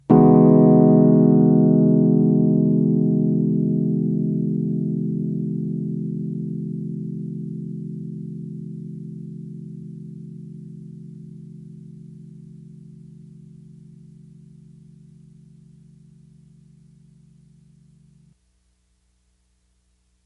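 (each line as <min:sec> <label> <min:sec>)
0:00.1 A rich chord is played on an electric piano, producing a warm, sustained tone with a smooth, slightly synthetic texture. 0:11.0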